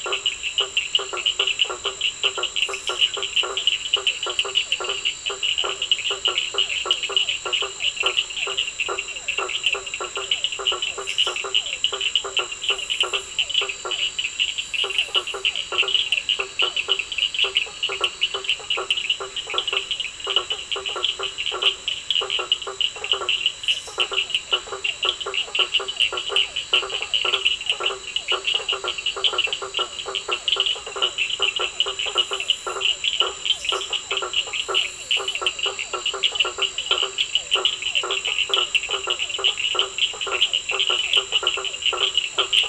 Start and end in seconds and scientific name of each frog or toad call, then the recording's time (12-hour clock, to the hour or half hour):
0.0	9.2	Elachistocleis bicolor
0.0	42.6	Boana faber
0.0	42.6	Sphaenorhynchus surdus
4.0	16.8	Physalaemus cuvieri
13.0	18.7	Elachistocleis bicolor
24.3	31.1	Elachistocleis bicolor
34.2	37.9	Elachistocleis bicolor
9pm